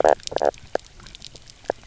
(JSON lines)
{"label": "biophony, knock croak", "recorder": "SoundTrap 300"}